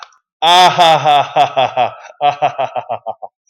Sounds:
Laughter